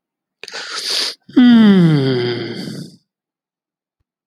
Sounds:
Sigh